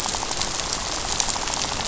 {"label": "biophony, rattle", "recorder": "SoundTrap 500"}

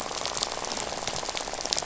{"label": "biophony, rattle", "recorder": "SoundTrap 500"}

